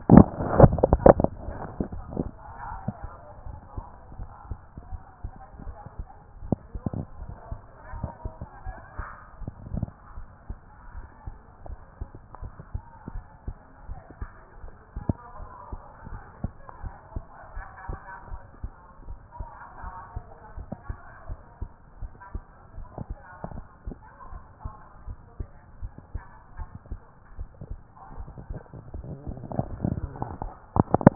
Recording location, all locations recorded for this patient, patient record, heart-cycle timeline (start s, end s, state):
tricuspid valve (TV)
aortic valve (AV)+pulmonary valve (PV)+tricuspid valve (TV)+mitral valve (MV)
#Age: nan
#Sex: Female
#Height: nan
#Weight: nan
#Pregnancy status: True
#Murmur: Absent
#Murmur locations: nan
#Most audible location: nan
#Systolic murmur timing: nan
#Systolic murmur shape: nan
#Systolic murmur grading: nan
#Systolic murmur pitch: nan
#Systolic murmur quality: nan
#Diastolic murmur timing: nan
#Diastolic murmur shape: nan
#Diastolic murmur grading: nan
#Diastolic murmur pitch: nan
#Diastolic murmur quality: nan
#Outcome: Normal
#Campaign: 2014 screening campaign
0.14	0.44	S2
0.44	1.18	diastole
1.18	1.34	S1
1.34	1.46	systole
1.46	1.62	S2
1.62	1.78	diastole
1.78	2.04	S1
2.04	2.12	systole
2.12	2.34	S2
2.34	2.70	diastole
2.70	2.82	S1
2.82	3.02	systole
3.02	3.12	S2
3.12	3.48	diastole
3.48	3.60	S1
3.60	3.76	systole
3.76	3.86	S2
3.86	4.16	diastole
4.16	4.28	S1
4.28	4.48	systole
4.48	4.58	S2
4.58	4.90	diastole
4.90	5.00	S1
5.00	5.22	systole
5.22	5.32	S2
5.32	5.62	diastole
5.62	5.76	S1
5.76	5.98	systole
5.98	6.08	S2
6.08	6.44	diastole
6.44	6.60	S1
6.60	6.94	systole
6.94	7.06	S2
7.06	7.20	diastole
7.20	7.30	S1
7.30	7.50	systole
7.50	7.60	S2
7.60	7.94	diastole
7.94	8.12	S1
8.12	8.24	systole
8.24	8.34	S2
8.34	8.68	diastole
8.68	8.74	S1
8.74	8.96	systole
8.96	9.06	S2
9.06	9.40	diastole
9.40	9.52	S1
9.52	9.72	systole
9.72	9.92	S2
9.92	10.18	diastole
10.18	10.26	S1
10.26	10.48	systole
10.48	10.58	S2
10.58	10.96	diastole
10.96	11.06	S1
11.06	11.26	systole
11.26	11.36	S2
11.36	11.68	diastole
11.68	11.78	S1
11.78	12.00	systole
12.00	12.08	S2
12.08	12.42	diastole
12.42	12.52	S1
12.52	12.72	systole
12.72	12.82	S2
12.82	13.12	diastole
13.12	13.24	S1
13.24	13.46	systole
13.46	13.56	S2
13.56	13.90	diastole
13.90	13.98	S1
13.98	14.20	systole
14.20	14.30	S2
14.30	14.64	diastole
14.64	14.70	S1
14.70	14.96	systole
14.96	15.16	S2
15.16	15.42	diastole
15.42	15.48	S1
15.48	15.72	systole
15.72	15.80	S2
15.80	16.12	diastole
16.12	16.22	S1
16.22	16.42	systole
16.42	16.52	S2
16.52	16.84	diastole
16.84	16.92	S1
16.92	17.14	systole
17.14	17.24	S2
17.24	17.56	diastole
17.56	17.64	S1
17.64	17.90	systole
17.90	18.00	S2
18.00	18.30	diastole
18.30	18.40	S1
18.40	18.62	systole
18.62	18.72	S2
18.72	19.08	diastole
19.08	19.18	S1
19.18	19.38	systole
19.38	19.48	S2
19.48	19.84	diastole
19.84	19.92	S1
19.92	20.14	systole
20.14	20.24	S2
20.24	20.58	diastole
20.58	20.66	S1
20.66	20.88	systole
20.88	20.98	S2
20.98	21.28	diastole
21.28	21.38	S1
21.38	21.60	systole
21.60	21.70	S2
21.70	22.02	diastole
22.02	22.10	S1
22.10	22.34	systole
22.34	22.42	S2
22.42	22.78	diastole
22.78	22.86	S1
22.86	23.08	systole
23.08	23.18	S2
23.18	23.52	diastole
23.52	23.64	S1
23.64	23.88	systole
23.88	23.98	S2
23.98	24.34	diastole
24.34	24.40	S1
24.40	24.66	systole
24.66	24.74	S2
24.74	25.08	diastole
25.08	25.16	S1
25.16	25.38	systole
25.38	25.48	S2
25.48	25.82	diastole
25.82	25.90	S1
25.90	26.14	systole
26.14	26.24	S2
26.24	26.58	diastole
26.58	26.68	S1
26.68	26.90	systole
26.90	27.00	S2
27.00	27.38	diastole
27.38	27.48	S1
27.48	27.72	systole
27.72	27.82	S2
27.82	28.18	diastole
28.18	28.30	S1
28.30	28.48	systole
28.48	28.62	S2
28.62	28.96	diastole
28.96	29.20	S1
29.20	29.52	systole
29.52	29.76	S2
29.76	29.82	diastole
29.82	30.12	S1
30.12	30.40	systole
30.40	30.54	S2
30.54	30.92	diastole
30.92	31.00	S1
31.00	31.15	systole